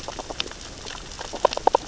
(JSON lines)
{"label": "biophony, grazing", "recorder": "SoundTrap 600 or HydroMoth"}